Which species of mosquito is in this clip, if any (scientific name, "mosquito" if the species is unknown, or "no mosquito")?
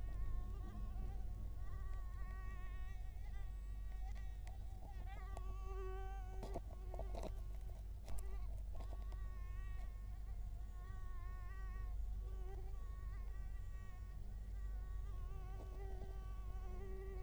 Culex quinquefasciatus